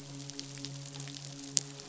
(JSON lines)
{"label": "biophony, midshipman", "recorder": "SoundTrap 500"}